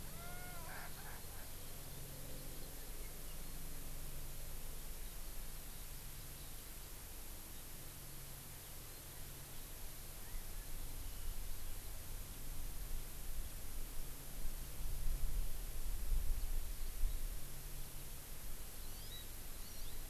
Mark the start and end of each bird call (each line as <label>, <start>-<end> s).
Erckel's Francolin (Pternistis erckelii), 0.1-1.6 s
Hawaii Amakihi (Chlorodrepanis virens), 18.8-19.2 s
Hawaii Amakihi (Chlorodrepanis virens), 19.6-19.9 s